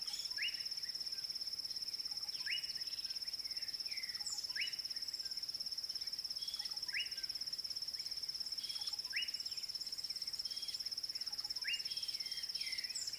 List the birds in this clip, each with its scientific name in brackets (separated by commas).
Slate-colored Boubou (Laniarius funebris), D'Arnaud's Barbet (Trachyphonus darnaudii)